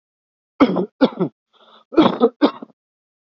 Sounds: Cough